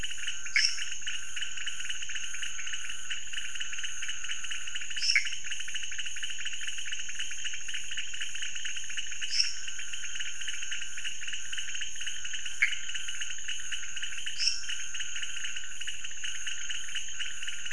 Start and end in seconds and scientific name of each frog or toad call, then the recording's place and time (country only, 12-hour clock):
0.0	17.7	Leptodactylus podicipinus
0.5	0.8	Dendropsophus minutus
4.9	5.4	Dendropsophus minutus
5.1	5.3	Pithecopus azureus
9.2	9.6	Dendropsophus minutus
12.6	12.7	Pithecopus azureus
14.3	14.7	Dendropsophus minutus
Brazil, 3:00am